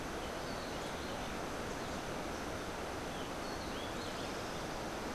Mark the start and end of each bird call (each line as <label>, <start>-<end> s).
Rufous-breasted Wren (Pheugopedius rutilus), 0.0-4.5 s